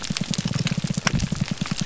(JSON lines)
{"label": "biophony, grouper groan", "recorder": "SoundTrap 300"}